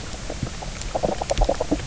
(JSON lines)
{"label": "biophony, knock croak", "recorder": "SoundTrap 300"}